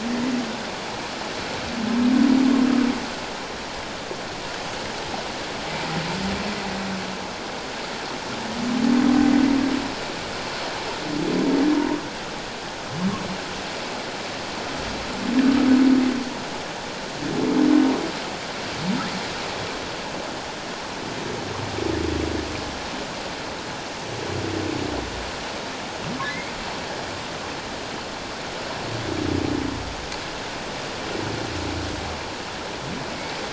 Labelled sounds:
26.2	26.5	humpback whale, 1.9 to 2.3 kHz

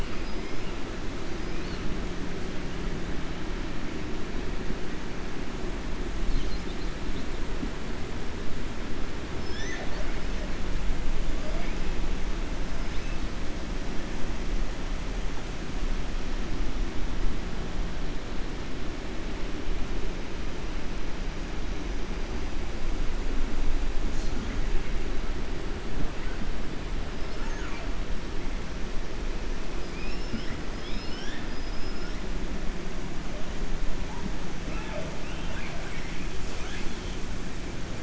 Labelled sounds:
29.8	32.2	killer whale, 1.4 to 6.6 kHz

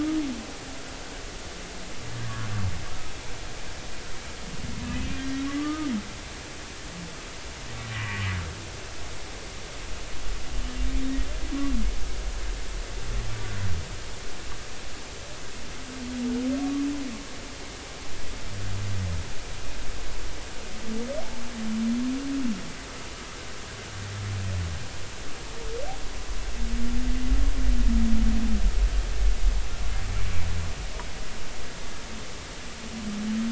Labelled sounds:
5.5	5.9	humpback whale, 1.1 to 1.3 kHz
7.9	8.2	humpback whale, 1.0 to 2.0 kHz

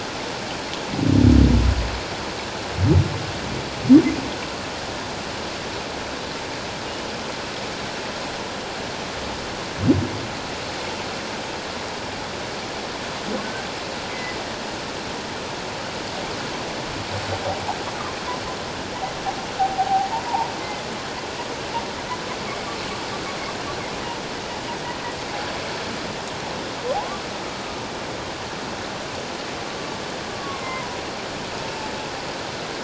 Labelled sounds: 13.4	14.4	humpback whale, 1.5 to 2.1 kHz
19.6	20.5	humpback whale, 0.78 to 1.0 kHz
26.9	27.2	humpback whale, 0.78 to 1.2 kHz
30.4	31.0	humpback whale, 0.94 to 1.2 kHz

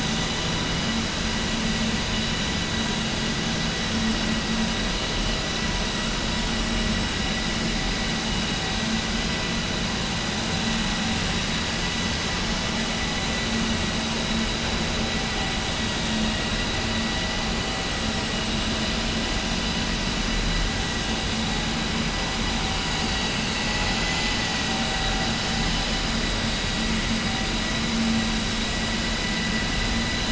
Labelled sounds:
23.7	24.5	vessel noise, 2.0 to 5.3 kHz

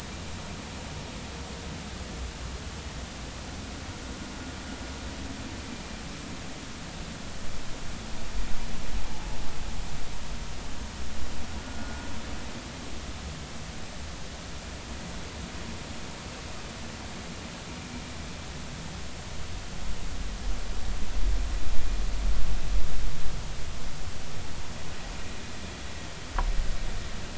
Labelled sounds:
11.6	12.1	vessel noise, 1.4 to 1.5 kHz

